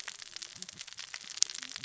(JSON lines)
{"label": "biophony, cascading saw", "recorder": "SoundTrap 600 or HydroMoth"}